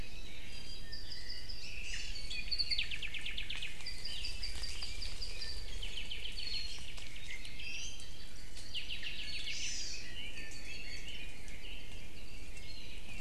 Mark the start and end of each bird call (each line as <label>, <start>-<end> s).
Iiwi (Drepanis coccinea), 0.4-1.1 s
Apapane (Himatione sanguinea), 0.8-7.9 s
Iiwi (Drepanis coccinea), 1.8-2.3 s
Iiwi (Drepanis coccinea), 7.2-8.1 s
Apapane (Himatione sanguinea), 8.7-9.8 s
Iiwi (Drepanis coccinea), 9.0-9.5 s
Hawaii Amakihi (Chlorodrepanis virens), 9.4-10.1 s
Red-billed Leiothrix (Leiothrix lutea), 9.8-12.0 s
Iiwi (Drepanis coccinea), 10.3-11.1 s